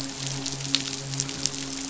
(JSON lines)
{"label": "biophony, midshipman", "recorder": "SoundTrap 500"}